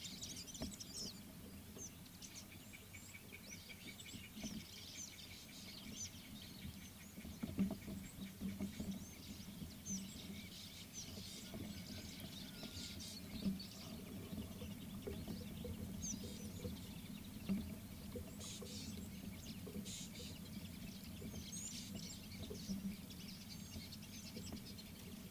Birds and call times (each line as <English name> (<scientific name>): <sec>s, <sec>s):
White-browed Coucal (Centropus superciliosus): 3.8s
Rattling Cisticola (Cisticola chiniana): 18.6s
Red-cheeked Cordonbleu (Uraeginthus bengalus): 21.6s